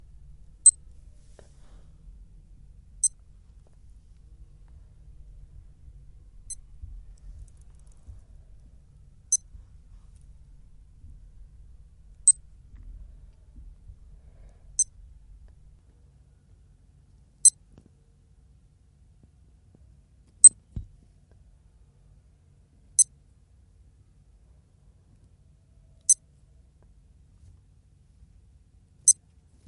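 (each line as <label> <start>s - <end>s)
A digital watch beeps shortly every five seconds in a quiet environment. 0.4s - 29.4s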